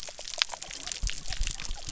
{"label": "biophony", "recorder": "SoundTrap 300"}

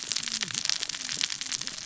{"label": "biophony, cascading saw", "recorder": "SoundTrap 600 or HydroMoth"}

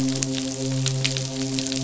{"label": "biophony, midshipman", "recorder": "SoundTrap 500"}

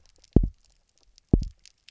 {"label": "biophony, double pulse", "recorder": "SoundTrap 300"}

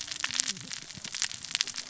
{"label": "biophony, cascading saw", "recorder": "SoundTrap 600 or HydroMoth"}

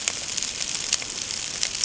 {"label": "ambient", "recorder": "HydroMoth"}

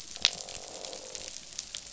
{"label": "biophony, croak", "recorder": "SoundTrap 500"}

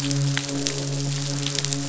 {"label": "biophony, midshipman", "recorder": "SoundTrap 500"}
{"label": "biophony, croak", "recorder": "SoundTrap 500"}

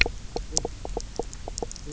{"label": "biophony, knock croak", "recorder": "SoundTrap 300"}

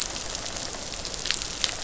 {"label": "biophony", "recorder": "SoundTrap 500"}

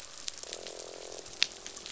{"label": "biophony, croak", "recorder": "SoundTrap 500"}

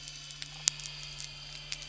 {"label": "anthrophony, boat engine", "recorder": "SoundTrap 300"}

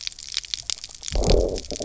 {"label": "biophony, low growl", "recorder": "SoundTrap 300"}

